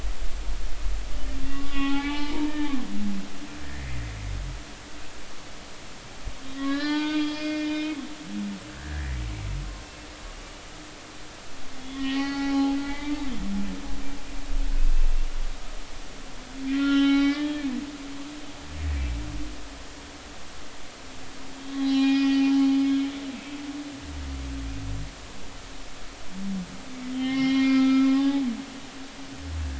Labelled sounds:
1.4	2.8	humpback whale, 0.80 to 3.6 kHz
3.6	4.0	humpback whale, 1.7 to 2.1 kHz
6.4	9.1	humpback whale, 0.83 to 5.2 kHz
11.8	13.3	humpback whale, 0.80 to 5.3 kHz
16.7	17.7	humpback whale, 0.80 to 5.7 kHz
21.5	22.4	humpback whale, 0.80 to 5.5 kHz
23.3	23.6	humpback whale, 2.5 to 2.7 kHz
27.1	28.4	humpback whale, 0.80 to 5.7 kHz

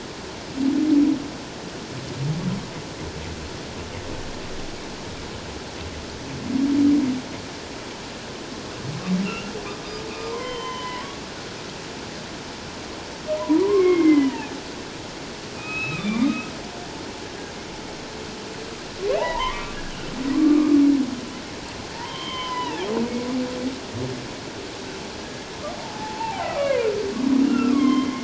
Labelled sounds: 9.3	9.5	humpback whale, 1.3 to 2.9 kHz
10.3	11.1	humpback whale, 0.88 to 3.2 kHz
13.4	14.5	humpback whale, 0.81 to 3.1 kHz
15.6	16.5	humpback whale, 1.1 to 3.9 kHz
19.2	19.8	humpback whale, 0.78 to 1.2 kHz
20.3	20.8	humpback whale, 1.0 to 1.3 kHz
21.9	22.9	humpback whale, 0.78 to 3.3 kHz
25.8	26.9	humpback whale, 0.78 to 2.4 kHz
27.5	28.1	humpback whale, 0.97 to 3.3 kHz

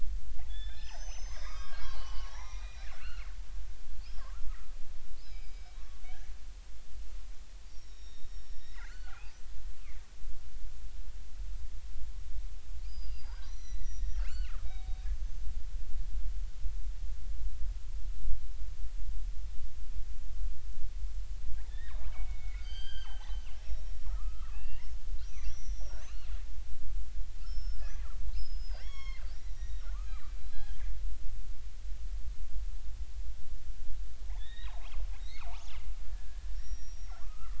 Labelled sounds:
0.5	3.3	killer whale, northern resident, G clan, 0.80 to 6.5 kHz
4.2	4.5	killer whale, northern resident, G clan, 0.99 to 1.4 kHz
5.2	6.0	killer whale, northern resident, G clan, 1.0 to 5.3 kHz
7.7	9.4	killer whale, northern resident, G clan, 0.80 to 5.7 kHz
12.8	15.4	killer whale, northern resident, G clan, 0.80 to 6.3 kHz
21.6	26.3	killer whale, northern resident, G clan, 0.80 to 6.3 kHz
27.5	28.1	killer whale, northern resident, G clan, 1.4 to 5.5 kHz
28.3	30.8	killer whale, northern resident, G clan, 0.83 to 6.8 kHz
34.4	37.5	killer whale, northern resident, G clan, 0.80 to 5.7 kHz

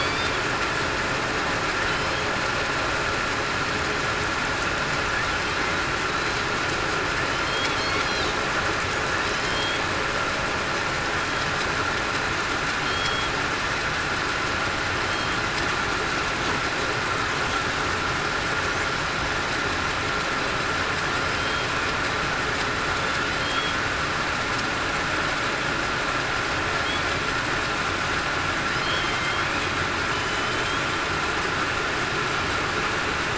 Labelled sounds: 9.3	9.8	killer whale, southern resident, 3.0 to 3.4 kHz
12.8	13.3	killer whale, southern resident, 3.2 to 3.4 kHz
23.4	23.7	killer whale, southern resident, 3.1 to 3.4 kHz
28.9	29.5	killer whale, southern resident, 3.0 to 3.4 kHz
30.1	30.6	killer whale, southern resident, 3.0 to 3.1 kHz

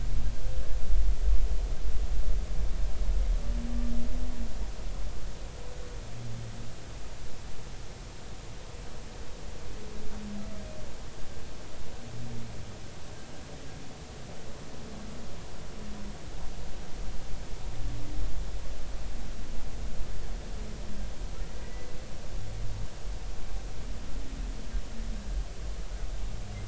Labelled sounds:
21.6	21.9	humpback whale, 1.9 to 2.0 kHz

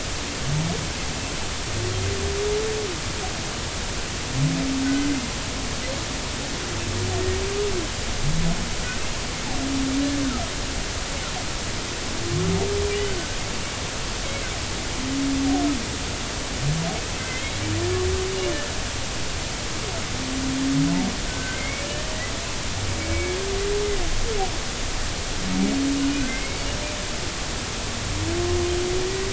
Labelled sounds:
4.8	5.1	humpback whale, 1.4 to 1.6 kHz
14.2	14.5	humpback whale, 2.0 to 2.3 kHz
17.2	17.6	humpback whale, 2.0 to 2.2 kHz
21.3	22.0	humpback whale, 1.5 to 3.0 kHz
23.0	23.4	humpback whale, 2.2 to 2.3 kHz
26.2	26.7	humpback whale, 1.4 to 2.3 kHz

